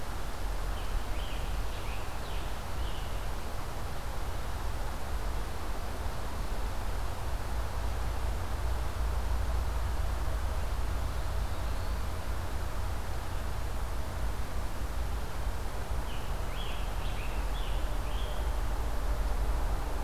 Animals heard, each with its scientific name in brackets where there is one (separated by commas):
Eastern Wood-Pewee (Contopus virens), Scarlet Tanager (Piranga olivacea)